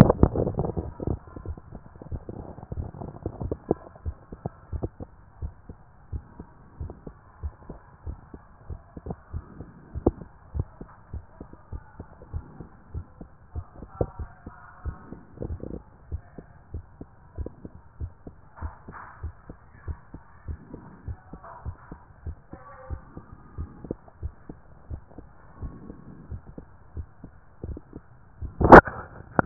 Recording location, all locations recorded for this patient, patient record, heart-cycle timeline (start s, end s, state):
pulmonary valve (PV)
aortic valve (AV)+pulmonary valve (PV)+tricuspid valve (TV)+mitral valve (MV)
#Age: Child
#Sex: Female
#Height: nan
#Weight: nan
#Pregnancy status: False
#Murmur: Absent
#Murmur locations: nan
#Most audible location: nan
#Systolic murmur timing: nan
#Systolic murmur shape: nan
#Systolic murmur grading: nan
#Systolic murmur pitch: nan
#Systolic murmur quality: nan
#Diastolic murmur timing: nan
#Diastolic murmur shape: nan
#Diastolic murmur grading: nan
#Diastolic murmur pitch: nan
#Diastolic murmur quality: nan
#Outcome: Abnormal
#Campaign: 2014 screening campaign
0.00	16.10	unannotated
16.10	16.22	S1
16.22	16.36	systole
16.36	16.46	S2
16.46	16.72	diastole
16.72	16.84	S1
16.84	17.00	systole
17.00	17.10	S2
17.10	17.38	diastole
17.38	17.50	S1
17.50	17.64	systole
17.64	17.72	S2
17.72	18.00	diastole
18.00	18.12	S1
18.12	18.26	systole
18.26	18.36	S2
18.36	18.62	diastole
18.62	18.72	S1
18.72	18.86	systole
18.86	18.96	S2
18.96	19.22	diastole
19.22	19.34	S1
19.34	19.48	systole
19.48	19.58	S2
19.58	19.86	diastole
19.86	19.98	S1
19.98	20.12	systole
20.12	20.22	S2
20.22	20.48	diastole
20.48	20.58	S1
20.58	20.72	systole
20.72	20.82	S2
20.82	21.06	diastole
21.06	21.18	S1
21.18	21.32	systole
21.32	21.42	S2
21.42	21.64	diastole
21.64	21.76	S1
21.76	21.90	systole
21.90	22.00	S2
22.00	22.24	diastole
22.24	22.36	S1
22.36	22.52	systole
22.52	22.62	S2
22.62	22.90	diastole
22.90	23.00	S1
23.00	23.16	systole
23.16	23.26	S2
23.26	23.58	diastole
23.58	23.70	S1
23.70	23.88	systole
23.88	23.98	S2
23.98	24.22	diastole
24.22	24.34	S1
24.34	24.48	systole
24.48	24.58	S2
24.58	24.90	diastole
24.90	25.02	S1
25.02	25.18	systole
25.18	25.28	S2
25.28	25.62	diastole
25.62	25.74	S1
25.74	25.88	systole
25.88	25.98	S2
25.98	26.30	diastole
26.30	26.42	S1
26.42	26.56	systole
26.56	26.68	S2
26.68	26.96	diastole
26.96	27.06	S1
27.06	27.24	systole
27.24	27.32	S2
27.32	27.66	diastole
27.66	27.78	S1
27.78	27.94	systole
27.94	28.02	S2
28.02	28.42	diastole
28.42	29.46	unannotated